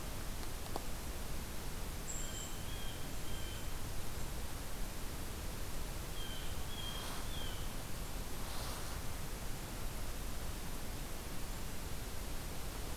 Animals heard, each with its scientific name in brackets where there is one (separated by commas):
Blue Jay (Cyanocitta cristata), Golden-crowned Kinglet (Regulus satrapa)